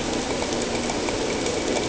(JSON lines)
{"label": "ambient", "recorder": "HydroMoth"}